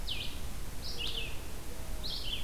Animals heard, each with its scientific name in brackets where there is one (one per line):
Red-eyed Vireo (Vireo olivaceus)
Mourning Dove (Zenaida macroura)